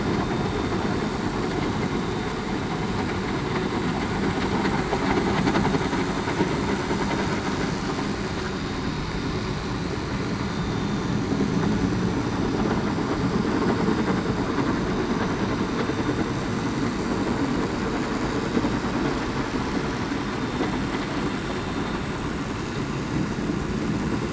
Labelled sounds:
10.5	11.0	vessel noise, 3.5 to 3.6 kHz

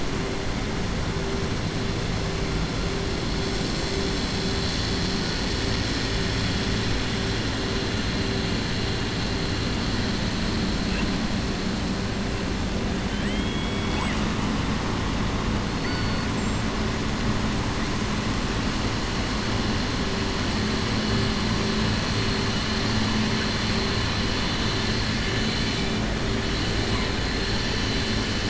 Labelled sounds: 13.0	14.2	killer whale, southern resident, 0.85 to 3.4 kHz
15.7	16.2	killer whale, southern resident, 3.6 to 4.6 kHz

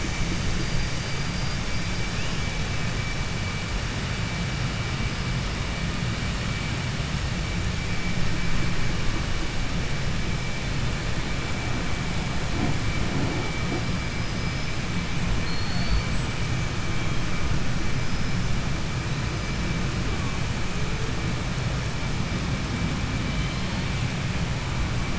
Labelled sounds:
0.0	2.7	killer whale, 4.1 to 8.0 kHz
13.6	14.8	killer whale, southern resident, 4.3 to 8.0 kHz
14.8	15.2	killer whale, 7.5 to 8.0 kHz
15.4	16.1	killer whale, southern resident, 0.43 to 8.0 kHz
16.0	16.6	killer whale, 7.5 to 8.0 kHz
17.8	18.7	killer whale, 4.7 to 6.1 kHz
19.0	19.7	killer whale, 3.6 to 6.6 kHz

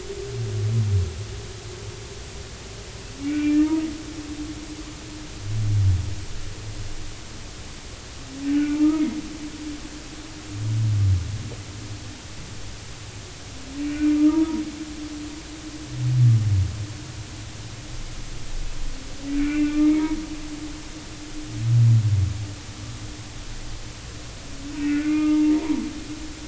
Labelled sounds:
3.2	3.8	humpback whale, 1.2 to 2.4 kHz
8.7	9.1	humpback whale, 0.86 to 1.3 kHz
13.8	14.5	humpback whale, 0.86 to 2.5 kHz
19.3	19.8	humpback whale, 2.1 to 2.5 kHz
24.8	25.8	humpback whale, 0.86 to 2.5 kHz

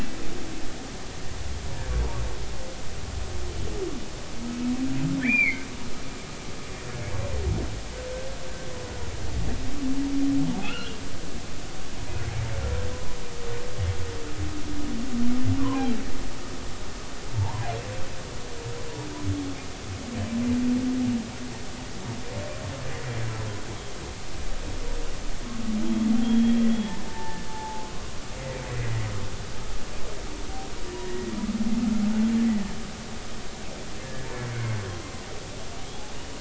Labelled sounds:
5.2	5.6	humpback whale, 1.7 to 2.5 kHz
10.6	11.0	humpback whale, 1.2 to 3.4 kHz
15.6	15.8	humpback whale, 0.93 to 1.2 kHz
17.3	17.7	humpback whale, 0.80 to 1.1 kHz
26.2	27.9	humpback whale, 0.80 to 3.4 kHz
28.6	29.0	humpback whale, 1.9 to 2.1 kHz
31.0	31.3	humpback whale, 1.8 to 1.9 kHz
34.0	34.8	humpback whale, 1.7 to 2.2 kHz

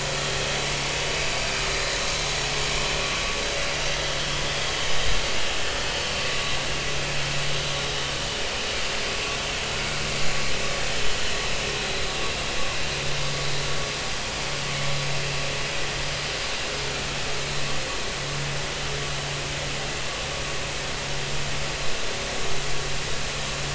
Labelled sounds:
1.3	1.6	vessel noise, 4.5 to 4.8 kHz

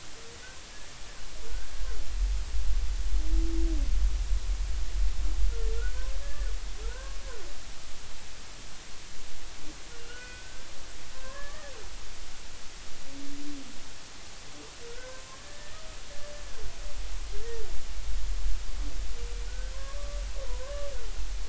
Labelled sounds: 1.5	1.8	humpback whale, 1.4 to 1.7 kHz
5.7	6.5	humpback whale, 1.3 to 1.8 kHz
6.8	7.2	humpback whale, 0.90 to 1.7 kHz
10.0	10.7	humpback whale, 1.3 to 3.0 kHz
11.2	11.7	humpback whale, 0.96 to 1.9 kHz
14.9	15.8	humpback whale, 0.96 to 1.9 kHz
19.5	19.7	humpback whale, 1.4 to 1.6 kHz
20.4	20.9	humpback whale, 0.93 to 1.2 kHz

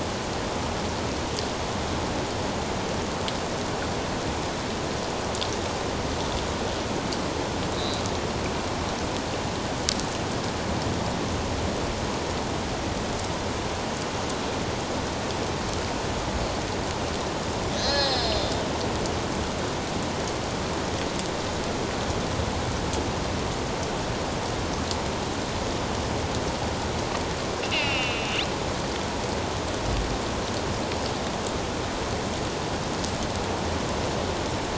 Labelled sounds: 7.7	8.0	killer whale, northern resident, A clan, AB subclan, 3.6 to 4.2 kHz
17.8	18.4	killer whale, northern resident, A clan, AB subclan, 1.6 to 5.4 kHz
27.6	28.4	killer whale, northern resident, A clan, AB subclan, 2.0 to 3.2 kHz

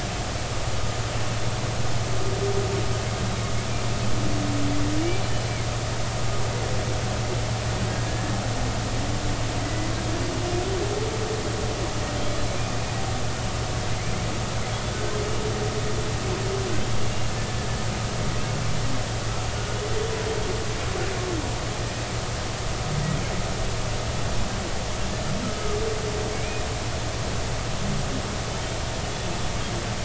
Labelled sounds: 9.6	9.9	humpback whale, 1.9 to 2.0 kHz
12.2	12.4	humpback whale, 3.1 to 3.5 kHz
26.3	26.6	humpback whale, 2.2 to 2.6 kHz

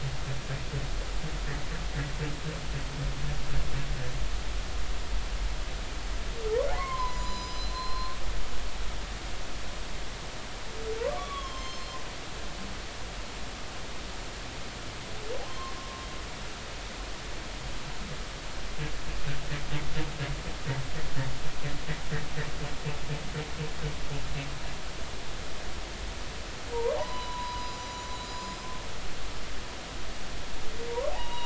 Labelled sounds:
6.7	8.2	humpback whale, 0.93 to 7.1 kHz
11.2	12.0	humpback whale, 0.99 to 6.4 kHz
15.8	16.1	humpback whale, 1.0 to 1.2 kHz
16.5	16.8	humpback whale, 0.99 to 1.1 kHz
26.7	28.7	humpback whale, 0.80 to 7.0 kHz
31.1	31.4	humpback whale, 0.80 to 3.9 kHz

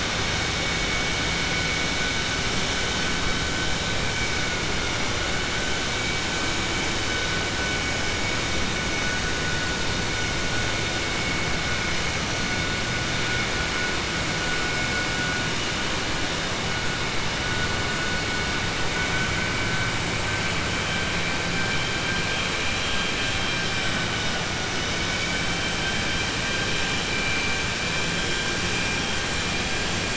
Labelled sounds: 24.8	25.6	vessel noise, 1.5 to 3.1 kHz

